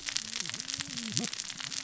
{"label": "biophony, cascading saw", "recorder": "SoundTrap 600 or HydroMoth"}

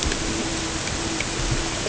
{"label": "ambient", "recorder": "HydroMoth"}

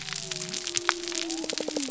{"label": "biophony", "recorder": "SoundTrap 300"}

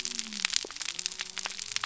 {"label": "biophony", "recorder": "SoundTrap 300"}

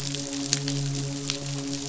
{"label": "biophony, midshipman", "recorder": "SoundTrap 500"}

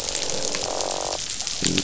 {"label": "biophony, croak", "recorder": "SoundTrap 500"}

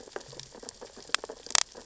{"label": "biophony, sea urchins (Echinidae)", "recorder": "SoundTrap 600 or HydroMoth"}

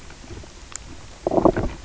{"label": "biophony, knock croak", "recorder": "SoundTrap 300"}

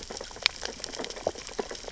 {"label": "biophony, sea urchins (Echinidae)", "recorder": "SoundTrap 600 or HydroMoth"}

